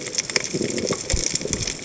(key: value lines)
label: biophony, chatter
recorder: HydroMoth